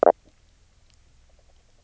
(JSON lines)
{"label": "biophony", "recorder": "SoundTrap 300"}